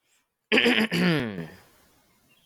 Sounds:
Throat clearing